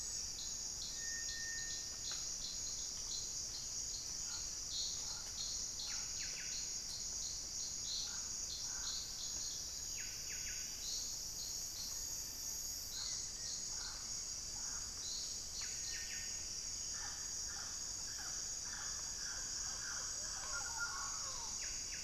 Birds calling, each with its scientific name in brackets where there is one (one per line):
White-flanked Antwren (Myrmotherula axillaris)
Pale-vented Pigeon (Patagioenas cayennensis)
Buff-breasted Wren (Cantorchilus leucotis)